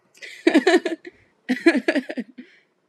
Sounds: Laughter